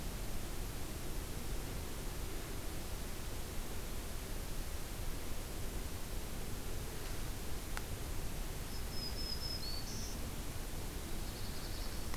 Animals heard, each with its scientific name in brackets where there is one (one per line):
Black-throated Green Warbler (Setophaga virens)
Black-throated Blue Warbler (Setophaga caerulescens)